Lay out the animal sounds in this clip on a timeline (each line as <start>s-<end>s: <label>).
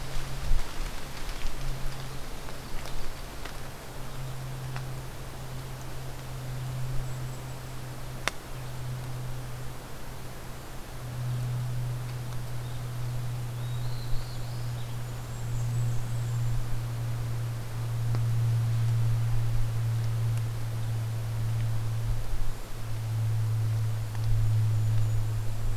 6.8s-8.0s: Golden-crowned Kinglet (Regulus satrapa)
13.6s-14.8s: Black-throated Blue Warbler (Setophaga caerulescens)
13.9s-15.9s: Golden-crowned Kinglet (Regulus satrapa)
15.3s-16.5s: Blackburnian Warbler (Setophaga fusca)
24.3s-25.8s: Golden-crowned Kinglet (Regulus satrapa)